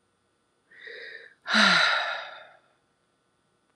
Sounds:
Sigh